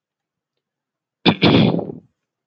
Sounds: Throat clearing